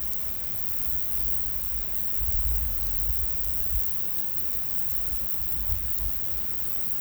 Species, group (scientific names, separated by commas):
Stethophyma grossum, Orthoptera